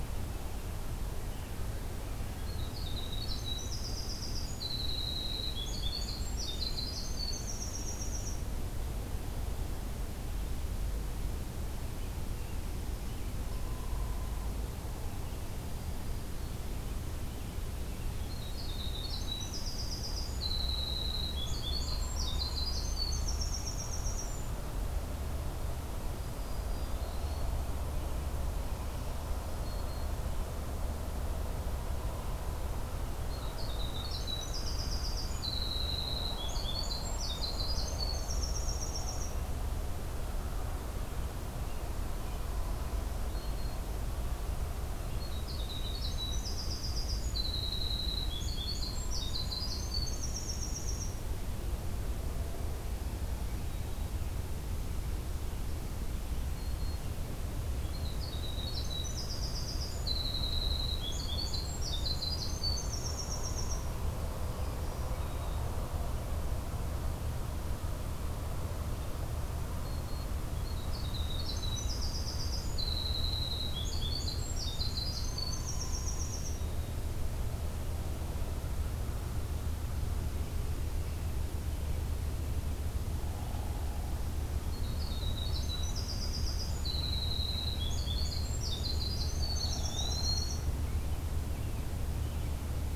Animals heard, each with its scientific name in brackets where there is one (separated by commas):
Eastern Wood-Pewee (Contopus virens), Hairy Woodpecker (Dryobates villosus), Black-throated Green Warbler (Setophaga virens), American Robin (Turdus migratorius), Winter Wren (Troglodytes hiemalis)